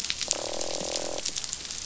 {"label": "biophony, croak", "recorder": "SoundTrap 500"}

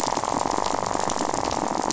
{"label": "biophony, rattle", "recorder": "SoundTrap 500"}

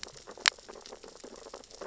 {"label": "biophony, sea urchins (Echinidae)", "recorder": "SoundTrap 600 or HydroMoth"}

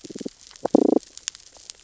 {"label": "biophony, damselfish", "recorder": "SoundTrap 600 or HydroMoth"}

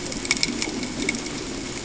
{"label": "ambient", "recorder": "HydroMoth"}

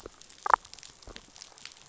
{"label": "biophony, damselfish", "recorder": "SoundTrap 500"}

